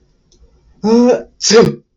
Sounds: Sneeze